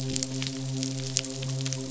{"label": "biophony, midshipman", "recorder": "SoundTrap 500"}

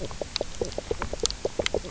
{"label": "biophony, knock croak", "recorder": "SoundTrap 300"}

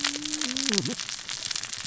{"label": "biophony, cascading saw", "recorder": "SoundTrap 600 or HydroMoth"}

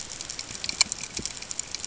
{"label": "ambient", "recorder": "HydroMoth"}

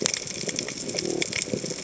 {"label": "biophony", "recorder": "HydroMoth"}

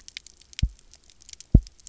{"label": "biophony, double pulse", "recorder": "SoundTrap 300"}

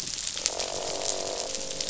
{"label": "biophony, croak", "recorder": "SoundTrap 500"}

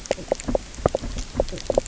{"label": "biophony, knock croak", "recorder": "SoundTrap 300"}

